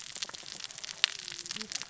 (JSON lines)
{"label": "biophony, cascading saw", "recorder": "SoundTrap 600 or HydroMoth"}